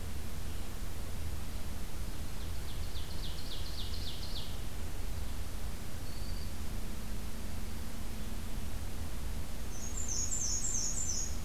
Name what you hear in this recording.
Ovenbird, Black-throated Green Warbler, Black-and-white Warbler